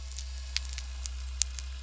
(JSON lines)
{"label": "anthrophony, boat engine", "recorder": "SoundTrap 300"}